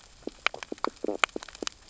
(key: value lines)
label: biophony, stridulation
recorder: SoundTrap 600 or HydroMoth